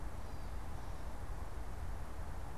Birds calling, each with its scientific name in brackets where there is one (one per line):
Gray Catbird (Dumetella carolinensis)